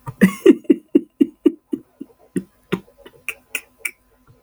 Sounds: Laughter